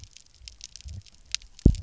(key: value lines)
label: biophony, double pulse
recorder: SoundTrap 300